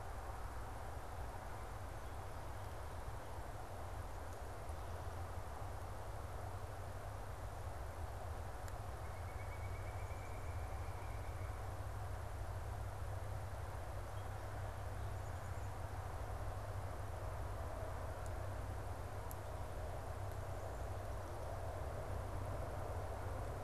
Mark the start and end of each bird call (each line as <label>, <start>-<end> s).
Pileated Woodpecker (Dryocopus pileatus), 8.9-11.8 s